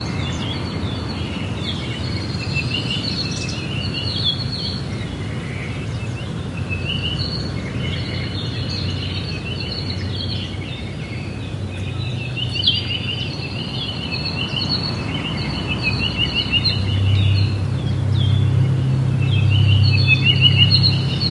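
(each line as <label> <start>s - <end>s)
Many birds are chirping loudly. 0.0s - 21.3s
Continuous static sound. 0.0s - 21.3s
An engine grows louder with a muffled sound. 16.8s - 21.3s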